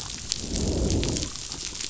{"label": "biophony, growl", "recorder": "SoundTrap 500"}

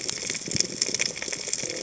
{"label": "biophony", "recorder": "HydroMoth"}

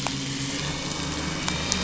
{"label": "anthrophony, boat engine", "recorder": "SoundTrap 500"}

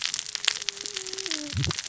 {"label": "biophony, cascading saw", "recorder": "SoundTrap 600 or HydroMoth"}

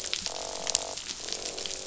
{"label": "biophony, croak", "recorder": "SoundTrap 500"}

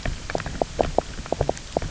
{"label": "biophony, grazing", "recorder": "SoundTrap 300"}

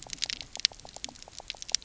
{"label": "biophony, knock croak", "recorder": "SoundTrap 300"}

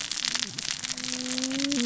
{"label": "biophony, cascading saw", "recorder": "SoundTrap 600 or HydroMoth"}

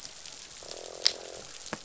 {"label": "biophony, croak", "recorder": "SoundTrap 500"}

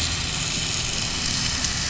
{"label": "anthrophony, boat engine", "recorder": "SoundTrap 500"}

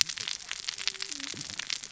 {"label": "biophony, cascading saw", "recorder": "SoundTrap 600 or HydroMoth"}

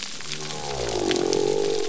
{"label": "biophony", "recorder": "SoundTrap 300"}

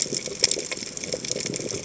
{"label": "biophony, chatter", "recorder": "HydroMoth"}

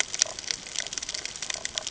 {"label": "ambient", "recorder": "HydroMoth"}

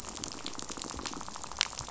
{"label": "biophony, rattle", "recorder": "SoundTrap 500"}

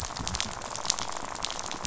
{"label": "biophony, rattle", "recorder": "SoundTrap 500"}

